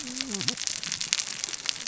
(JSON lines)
{"label": "biophony, cascading saw", "recorder": "SoundTrap 600 or HydroMoth"}